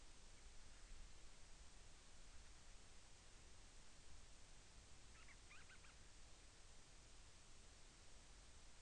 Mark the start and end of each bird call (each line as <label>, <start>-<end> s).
Band-rumped Storm-Petrel (Hydrobates castro), 5.0-6.1 s